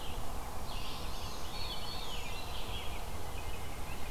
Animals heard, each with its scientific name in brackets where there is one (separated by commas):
Veery (Catharus fuscescens), White-breasted Nuthatch (Sitta carolinensis), Red-eyed Vireo (Vireo olivaceus), Black-throated Green Warbler (Setophaga virens)